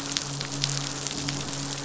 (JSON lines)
{"label": "biophony, midshipman", "recorder": "SoundTrap 500"}